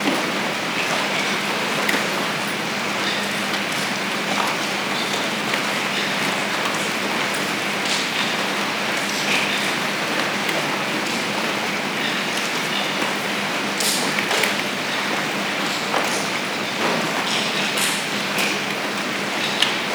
Is the sound coming from an ocean?
no